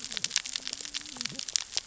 {"label": "biophony, cascading saw", "recorder": "SoundTrap 600 or HydroMoth"}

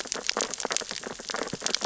{"label": "biophony, sea urchins (Echinidae)", "recorder": "SoundTrap 600 or HydroMoth"}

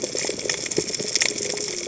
{"label": "biophony, cascading saw", "recorder": "HydroMoth"}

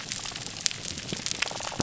{"label": "biophony", "recorder": "SoundTrap 300"}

